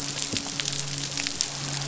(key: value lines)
label: biophony, midshipman
recorder: SoundTrap 500